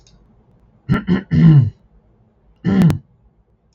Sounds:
Throat clearing